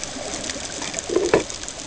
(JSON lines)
{"label": "ambient", "recorder": "HydroMoth"}